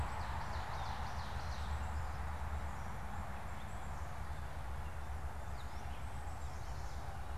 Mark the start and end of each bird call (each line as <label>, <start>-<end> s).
Ovenbird (Seiurus aurocapilla), 0.0-2.1 s
Black-capped Chickadee (Poecile atricapillus), 1.4-7.3 s
Chestnut-sided Warbler (Setophaga pensylvanica), 6.0-7.0 s